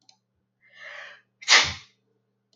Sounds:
Sneeze